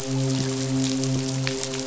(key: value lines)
label: biophony, midshipman
recorder: SoundTrap 500